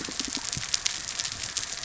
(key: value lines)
label: biophony
recorder: SoundTrap 300